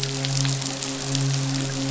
{"label": "biophony, midshipman", "recorder": "SoundTrap 500"}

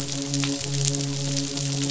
{"label": "biophony, midshipman", "recorder": "SoundTrap 500"}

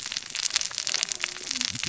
{"label": "biophony, cascading saw", "recorder": "SoundTrap 600 or HydroMoth"}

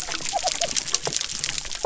{"label": "biophony", "recorder": "SoundTrap 300"}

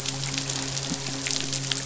{"label": "biophony, midshipman", "recorder": "SoundTrap 500"}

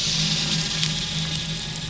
{"label": "anthrophony, boat engine", "recorder": "SoundTrap 500"}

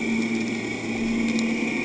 {"label": "anthrophony, boat engine", "recorder": "HydroMoth"}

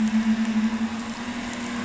{"label": "anthrophony, boat engine", "recorder": "SoundTrap 500"}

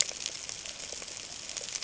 {"label": "ambient", "recorder": "HydroMoth"}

